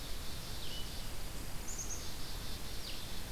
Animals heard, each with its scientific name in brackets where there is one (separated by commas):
Dark-eyed Junco (Junco hyemalis), Blue-headed Vireo (Vireo solitarius), Black-capped Chickadee (Poecile atricapillus)